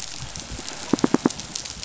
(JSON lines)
{"label": "biophony, knock", "recorder": "SoundTrap 500"}